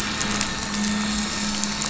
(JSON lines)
{"label": "anthrophony, boat engine", "recorder": "SoundTrap 500"}